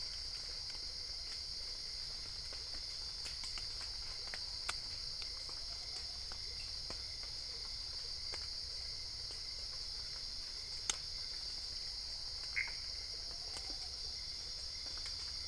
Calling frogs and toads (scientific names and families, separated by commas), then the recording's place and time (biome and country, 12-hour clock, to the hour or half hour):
Pithecopus azureus (Hylidae)
Cerrado, Brazil, midnight